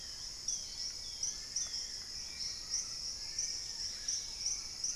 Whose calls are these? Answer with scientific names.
Myrmotherula longipennis, Turdus hauxwelli, Nasica longirostris, Pachysylvia hypoxantha